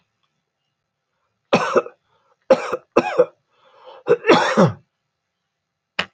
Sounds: Cough